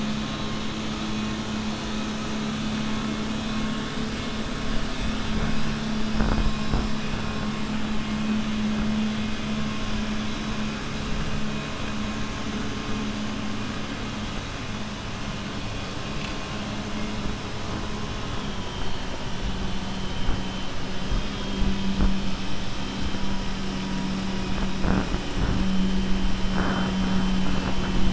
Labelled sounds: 21.0	22.1	vessel noise, 2.3 to 4.6 kHz

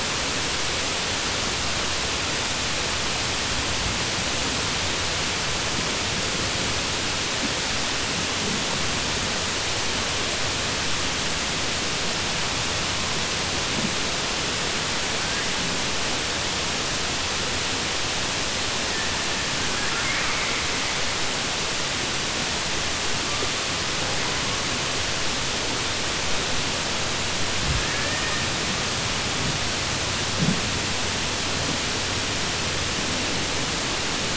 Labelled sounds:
19.7	20.6	killer whale, southern resident, 1.2 to 2.4 kHz

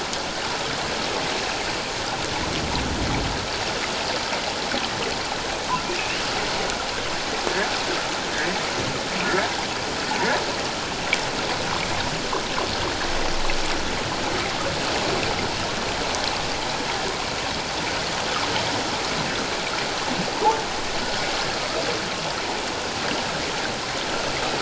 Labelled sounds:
5.8	6.2	humpback whale, 2.3 to 3.0 kHz

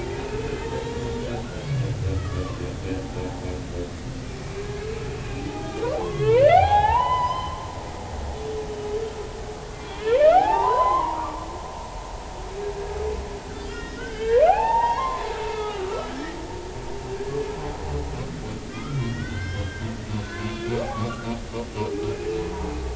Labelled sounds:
0.1	0.6	humpback whale, 2.3 to 2.6 kHz
2.1	2.6	humpback whale, 0.96 to 1.8 kHz
5.5	7.7	humpback whale, 0.80 to 5.2 kHz
9.8	11.5	humpback whale, 0.80 to 4.2 kHz
13.6	16.1	humpback whale, 0.80 to 3.6 kHz
18.7	19.9	humpback whale, 1.1 to 3.4 kHz
20.1	21.3	humpback whale, 0.99 to 3.5 kHz

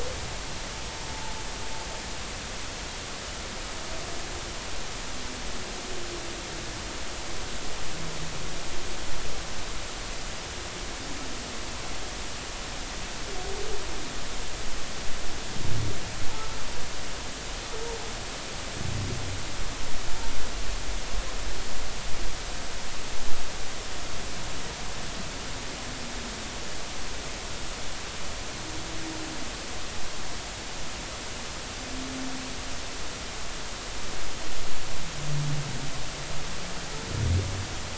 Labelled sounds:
1.1	1.4	humpback whale, 0.80 to 0.99 kHz

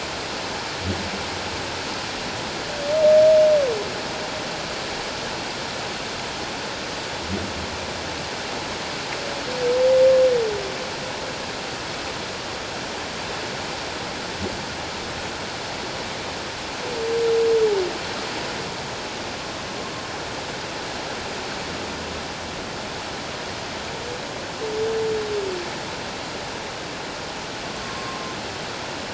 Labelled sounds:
27.8	28.3	humpback whale, 1.0 to 1.1 kHz

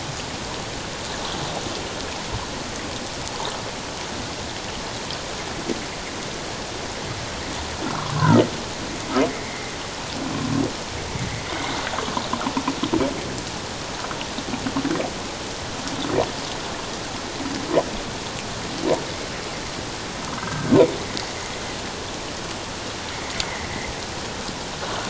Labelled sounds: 7.8	8.2	humpback whale, 0.97 to 1.5 kHz
9.3	9.7	humpback whale, 2.0 to 2.3 kHz
20.3	20.7	humpback whale, 1.5 to 1.7 kHz
23.4	23.7	humpback whale, 1.9 to 2.2 kHz

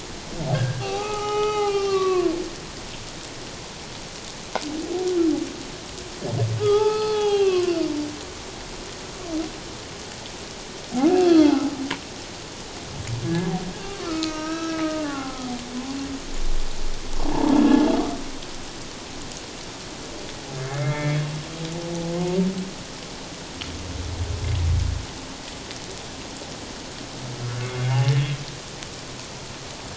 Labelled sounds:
0.5	2.3	humpback whale, 0.78 to 6.0 kHz
6.6	7.7	humpback whale, 0.78 to 4.3 kHz
11.2	11.7	humpback whale, 1.2 to 3.5 kHz
13.8	15.4	humpback whale, 0.78 to 5.6 kHz
20.6	21.2	humpback whale, 1.6 to 2.3 kHz
27.6	28.3	humpback whale, 0.78 to 2.3 kHz

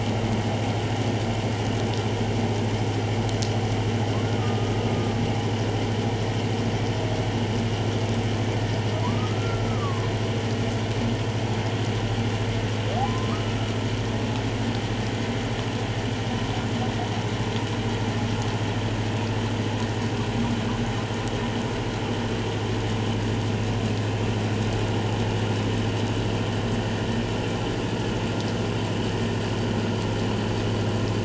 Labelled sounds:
4.4	5.2	humpback whale, 1.1 to 1.3 kHz
9.0	10.0	humpback whale, 0.94 to 1.5 kHz
13.0	13.4	humpback whale, 0.97 to 1.3 kHz

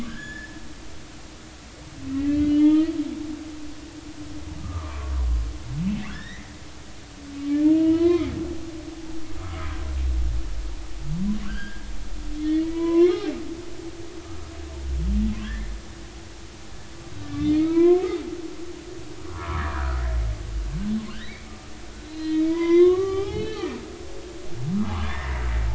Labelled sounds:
0.1	0.6	humpback whale, 1.5 to 5.2 kHz
2.0	2.9	humpback whale, 0.86 to 3.5 kHz
4.6	5.1	humpback whale, 0.99 to 1.3 kHz
6.1	6.6	humpback whale, 1.3 to 5.6 kHz
7.7	8.3	humpback whale, 0.93 to 3.1 kHz
11.4	11.9	humpback whale, 1.3 to 1.8 kHz
12.3	13.1	humpback whale, 0.93 to 3.5 kHz
15.4	15.7	humpback whale, 1.5 to 1.9 kHz
17.4	18.1	humpback whale, 0.93 to 4.4 kHz
19.3	20.0	humpback whale, 0.93 to 1.7 kHz
21.1	23.7	humpback whale, 0.80 to 4.7 kHz
25.0	25.3	humpback whale, 1.6 to 3.6 kHz

